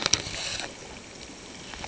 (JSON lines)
{"label": "ambient", "recorder": "HydroMoth"}